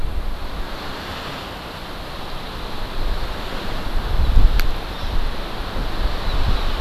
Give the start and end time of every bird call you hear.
[4.94, 5.14] Hawaii Amakihi (Chlorodrepanis virens)

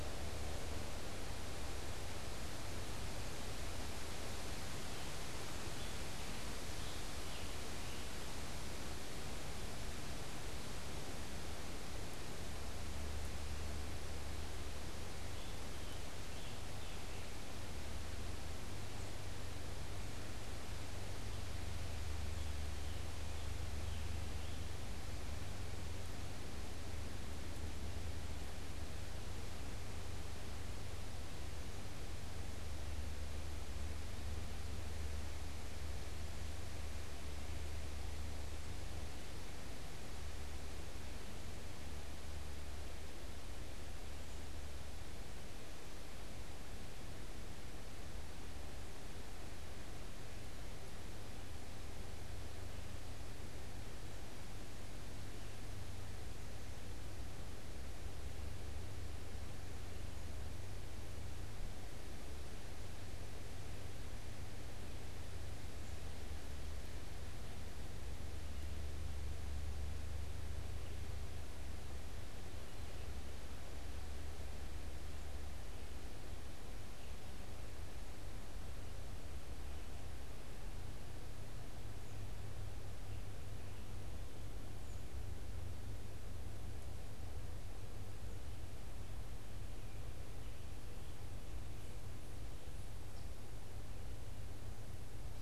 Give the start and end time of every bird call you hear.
[5.50, 24.80] Scarlet Tanager (Piranga olivacea)

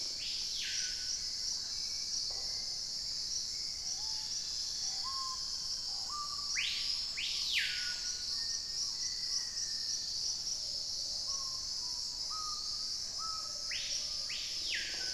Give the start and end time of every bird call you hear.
[0.00, 15.14] Screaming Piha (Lipaugus vociferans)
[1.06, 5.26] Hauxwell's Thrush (Turdus hauxwelli)
[2.16, 2.86] Red-necked Woodpecker (Campephilus rubricollis)
[3.66, 6.36] Chestnut-winged Foliage-gleaner (Dendroma erythroptera)
[6.76, 9.56] Black-tailed Trogon (Trogon melanurus)
[8.26, 10.16] Black-faced Antthrush (Formicarius analis)
[9.76, 10.86] Dusky-capped Greenlet (Pachysylvia hypoxantha)
[10.36, 15.14] Plumbeous Pigeon (Patagioenas plumbea)
[12.56, 14.96] Wing-barred Piprites (Piprites chloris)

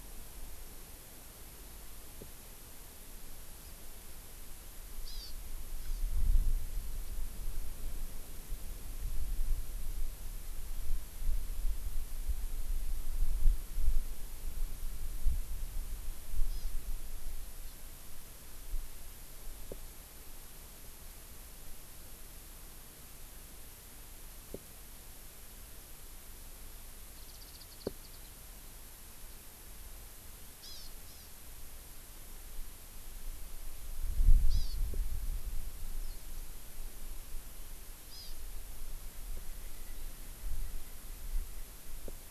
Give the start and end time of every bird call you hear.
[5.04, 5.34] Hawaii Amakihi (Chlorodrepanis virens)
[5.84, 6.04] Hawaii Amakihi (Chlorodrepanis virens)
[16.44, 16.74] Hawaii Amakihi (Chlorodrepanis virens)
[17.64, 17.74] Hawaii Amakihi (Chlorodrepanis virens)
[27.14, 28.34] Warbling White-eye (Zosterops japonicus)
[30.64, 31.24] Hawaii Amakihi (Chlorodrepanis virens)
[34.44, 34.74] Hawaii Amakihi (Chlorodrepanis virens)
[38.14, 38.34] Hawaii Amakihi (Chlorodrepanis virens)

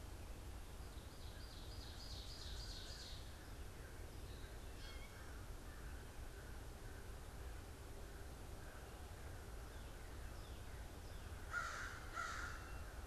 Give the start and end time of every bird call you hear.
[0.90, 3.40] Ovenbird (Seiurus aurocapilla)
[3.70, 13.00] American Crow (Corvus brachyrhynchos)
[4.60, 5.30] Gray Catbird (Dumetella carolinensis)

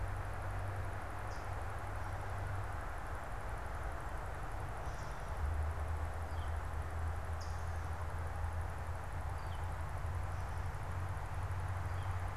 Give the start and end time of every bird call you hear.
[1.21, 1.61] Hooded Warbler (Setophaga citrina)
[6.11, 6.71] Northern Flicker (Colaptes auratus)
[7.31, 7.81] Hooded Warbler (Setophaga citrina)
[9.31, 12.31] Northern Flicker (Colaptes auratus)

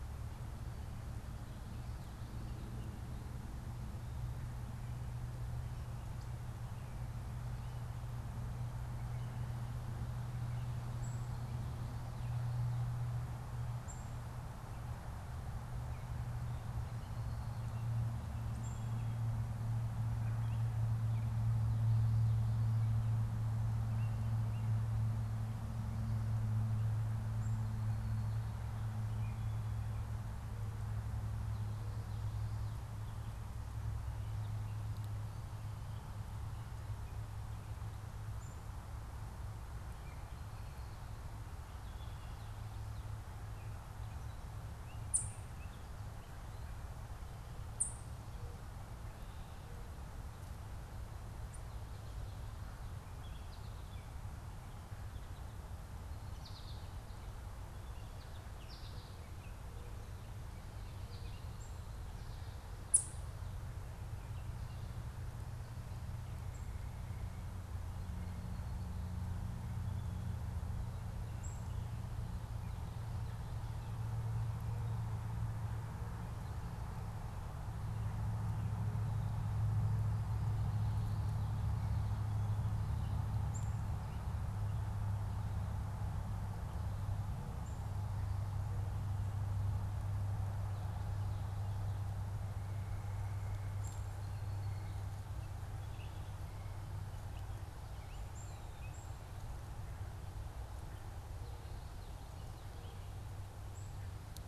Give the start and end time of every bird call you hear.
[10.80, 19.10] Black-capped Chickadee (Poecile atricapillus)
[14.40, 25.20] American Robin (Turdus migratorius)
[44.90, 48.20] Ovenbird (Seiurus aurocapilla)
[55.90, 61.60] American Goldfinch (Spinus tristis)
[62.80, 63.30] Ovenbird (Seiurus aurocapilla)
[71.30, 71.70] Black-capped Chickadee (Poecile atricapillus)
[83.30, 83.70] Black-capped Chickadee (Poecile atricapillus)
[93.20, 95.80] Song Sparrow (Melospiza melodia)
[93.60, 94.20] Black-capped Chickadee (Poecile atricapillus)
[96.70, 99.20] unidentified bird
[98.10, 99.50] Black-capped Chickadee (Poecile atricapillus)

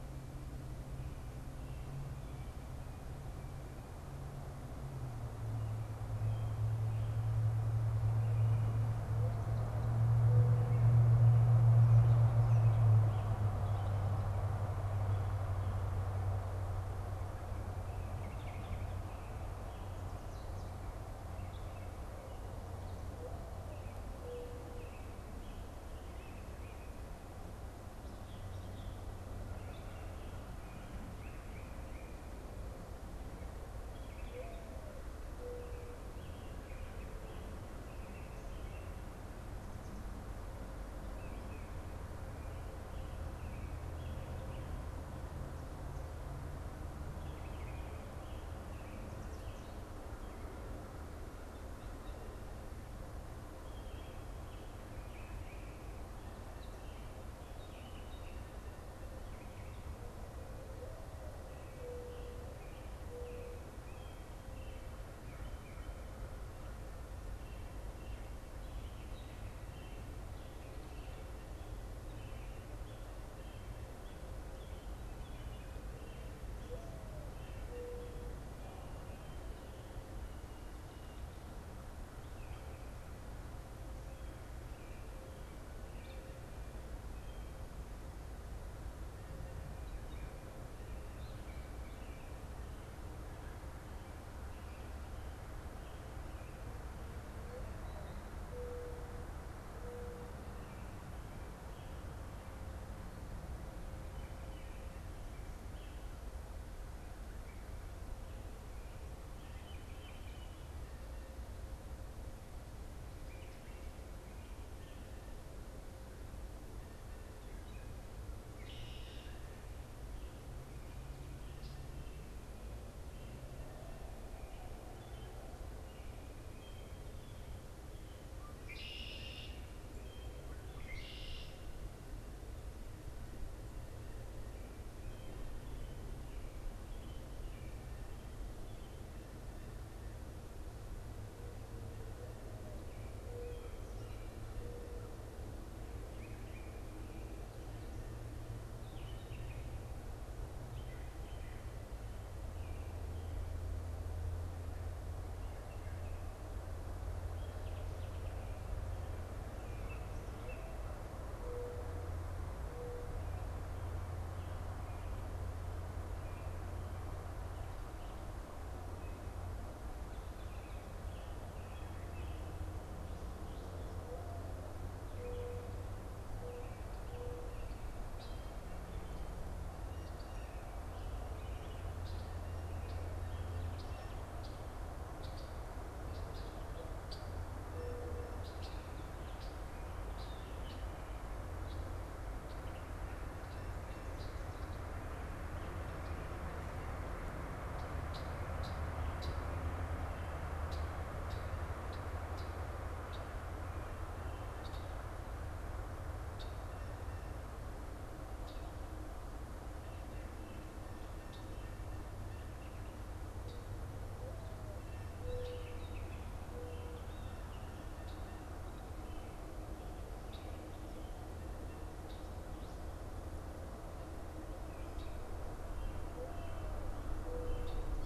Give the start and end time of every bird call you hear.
[9.02, 11.72] Mourning Dove (Zenaida macroura)
[10.22, 52.42] unidentified bird
[53.62, 97.02] American Robin (Turdus migratorius)
[97.22, 100.72] Mourning Dove (Zenaida macroura)
[103.92, 107.92] American Robin (Turdus migratorius)
[109.02, 110.82] American Robin (Turdus migratorius)
[118.22, 119.62] Red-winged Blackbird (Agelaius phoeniceus)
[128.52, 131.72] Red-winged Blackbird (Agelaius phoeniceus)
[141.72, 145.32] Mourning Dove (Zenaida macroura)
[146.02, 151.62] unidentified bird
[157.12, 161.32] unidentified bird
[164.62, 170.92] unidentified bird
[173.82, 177.82] Mourning Dove (Zenaida macroura)
[178.02, 228.02] Red-winged Blackbird (Agelaius phoeniceus)
[215.12, 218.62] unidentified bird

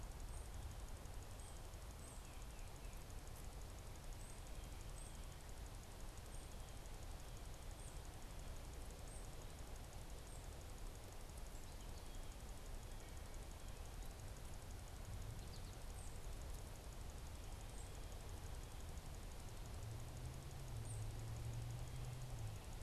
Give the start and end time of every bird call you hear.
[0.26, 10.76] unidentified bird
[15.16, 15.86] American Goldfinch (Spinus tristis)
[15.66, 21.16] unidentified bird

